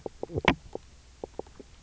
{"label": "biophony, knock croak", "recorder": "SoundTrap 300"}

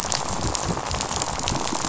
{"label": "biophony, rattle", "recorder": "SoundTrap 500"}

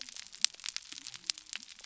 {"label": "biophony", "recorder": "SoundTrap 300"}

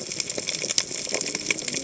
{"label": "biophony, cascading saw", "recorder": "HydroMoth"}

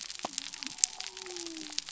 {"label": "biophony", "recorder": "SoundTrap 300"}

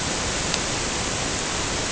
{"label": "ambient", "recorder": "HydroMoth"}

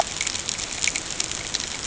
{"label": "ambient", "recorder": "HydroMoth"}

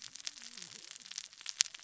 {"label": "biophony, cascading saw", "recorder": "SoundTrap 600 or HydroMoth"}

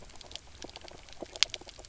{"label": "biophony, knock croak", "recorder": "SoundTrap 300"}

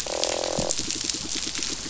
{"label": "biophony", "recorder": "SoundTrap 500"}
{"label": "biophony, croak", "recorder": "SoundTrap 500"}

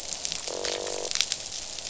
{"label": "biophony, croak", "recorder": "SoundTrap 500"}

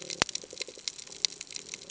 {"label": "ambient", "recorder": "HydroMoth"}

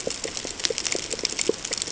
{"label": "ambient", "recorder": "HydroMoth"}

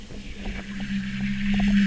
{"label": "anthrophony, boat engine", "recorder": "SoundTrap 300"}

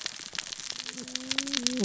{"label": "biophony, cascading saw", "recorder": "SoundTrap 600 or HydroMoth"}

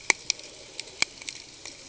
{"label": "ambient", "recorder": "HydroMoth"}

